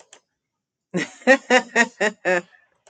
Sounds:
Laughter